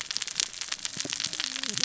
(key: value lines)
label: biophony, cascading saw
recorder: SoundTrap 600 or HydroMoth